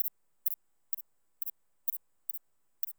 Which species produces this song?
Thyreonotus corsicus